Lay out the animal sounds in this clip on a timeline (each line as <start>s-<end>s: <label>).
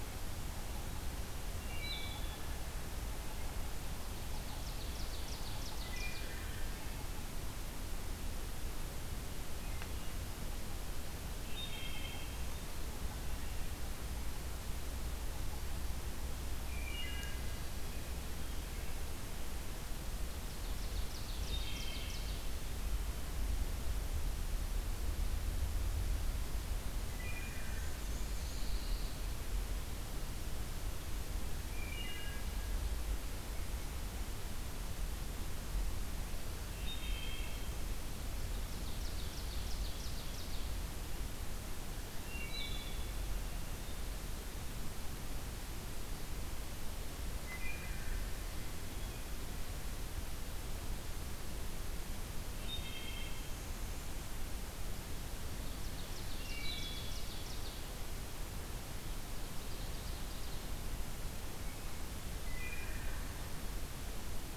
1.4s-2.6s: Wood Thrush (Hylocichla mustelina)
4.0s-6.5s: Ovenbird (Seiurus aurocapilla)
5.7s-7.0s: Wood Thrush (Hylocichla mustelina)
11.1s-13.0s: Wood Thrush (Hylocichla mustelina)
16.4s-18.0s: Wood Thrush (Hylocichla mustelina)
20.0s-22.5s: Ovenbird (Seiurus aurocapilla)
21.4s-22.5s: Wood Thrush (Hylocichla mustelina)
26.9s-28.2s: Wood Thrush (Hylocichla mustelina)
27.2s-28.8s: Black-and-white Warbler (Mniotilta varia)
28.1s-29.5s: Pine Warbler (Setophaga pinus)
31.6s-33.3s: Wood Thrush (Hylocichla mustelina)
36.4s-38.0s: Wood Thrush (Hylocichla mustelina)
37.9s-40.8s: Ovenbird (Seiurus aurocapilla)
41.9s-43.5s: Wood Thrush (Hylocichla mustelina)
47.1s-48.8s: Wood Thrush (Hylocichla mustelina)
52.2s-53.8s: Wood Thrush (Hylocichla mustelina)
55.3s-58.0s: Ovenbird (Seiurus aurocapilla)
56.2s-57.6s: Wood Thrush (Hylocichla mustelina)
59.2s-60.9s: Ovenbird (Seiurus aurocapilla)
62.0s-63.7s: Wood Thrush (Hylocichla mustelina)